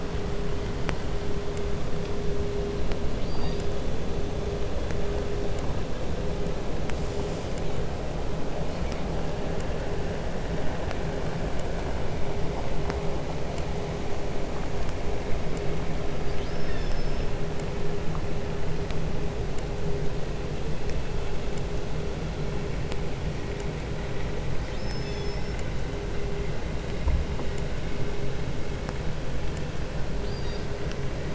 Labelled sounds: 3.0	3.9	killer whale, 0.57 to 5.2 kHz
16.0	17.4	killer whale, southern resident, call S36, 0.79 to 6.6 kHz
24.5	25.9	killer whale, southern resident, call S36, 1.9 to 7.2 kHz
30.1	31.0	killer whale, southern resident, 1.2 to 7.3 kHz

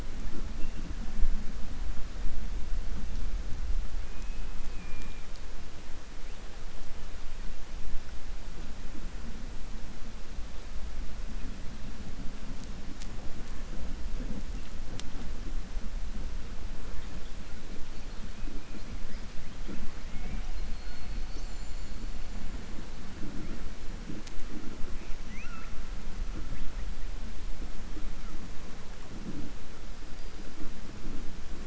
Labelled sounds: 25.2	25.7	killer whale, southern resident, 1.3 to 2.9 kHz

